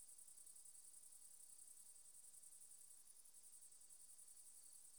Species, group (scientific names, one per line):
Tettigonia viridissima
Orthoptera